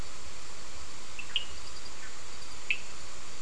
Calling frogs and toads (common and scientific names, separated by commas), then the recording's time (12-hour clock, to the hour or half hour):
Cochran's lime tree frog (Sphaenorhynchus surdus)
~9pm